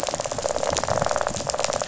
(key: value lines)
label: biophony, rattle
recorder: SoundTrap 500